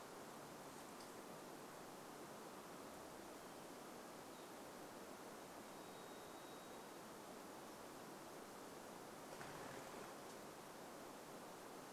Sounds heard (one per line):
bird wingbeats
Varied Thrush song
Hermit Thrush song